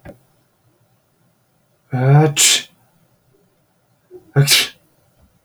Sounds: Sniff